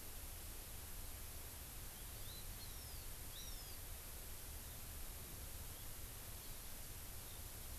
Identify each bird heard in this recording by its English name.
Hawaii Amakihi